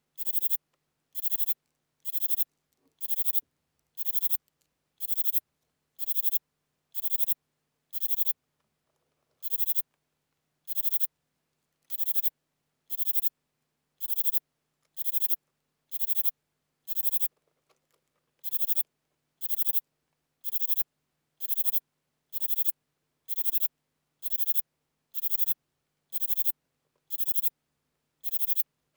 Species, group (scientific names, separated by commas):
Platycleis intermedia, Orthoptera